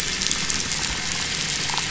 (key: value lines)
label: biophony
recorder: SoundTrap 500

label: anthrophony, boat engine
recorder: SoundTrap 500